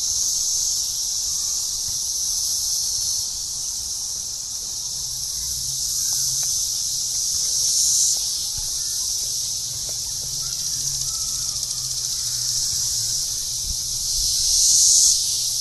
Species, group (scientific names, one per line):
Magicicada cassini
Cicadidae